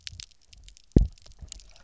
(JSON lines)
{"label": "biophony, double pulse", "recorder": "SoundTrap 300"}